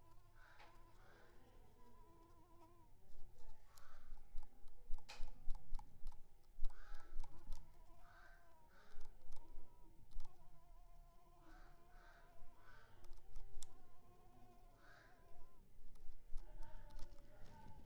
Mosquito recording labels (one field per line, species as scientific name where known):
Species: Anopheles coustani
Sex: female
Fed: unfed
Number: one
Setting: cup